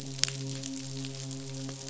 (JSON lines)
{"label": "biophony, midshipman", "recorder": "SoundTrap 500"}